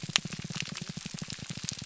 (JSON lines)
{"label": "biophony, pulse", "recorder": "SoundTrap 300"}